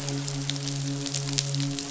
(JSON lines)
{"label": "biophony, midshipman", "recorder": "SoundTrap 500"}